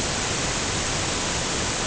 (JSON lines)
{"label": "ambient", "recorder": "HydroMoth"}